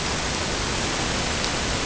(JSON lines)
{"label": "ambient", "recorder": "HydroMoth"}